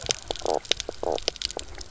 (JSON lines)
{"label": "biophony, knock croak", "recorder": "SoundTrap 300"}